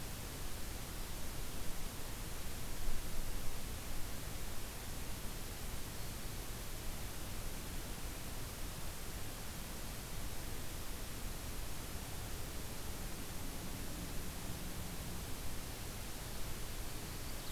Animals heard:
forest ambience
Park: Acadia National Park